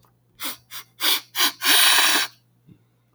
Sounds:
Sniff